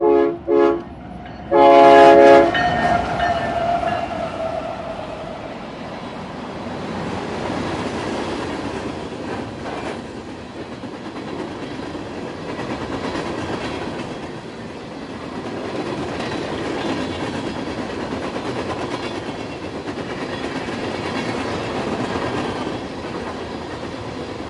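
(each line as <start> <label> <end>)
0.0 A horn honks loudly twice. 0.9
1.3 A train bell rings with a repetitive tone. 5.0
1.7 A horn honks once, long and loud. 2.9
5.7 A plane takes off with a rising roar. 9.1
7.7 A train chugs with a steady, rhythmic engine sound. 24.5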